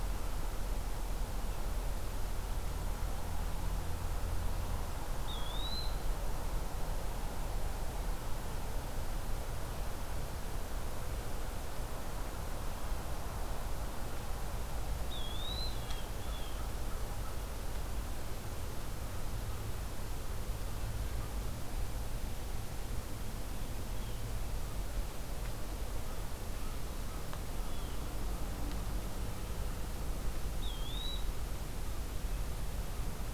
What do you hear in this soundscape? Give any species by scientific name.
Contopus virens, Cyanocitta cristata, Corvus brachyrhynchos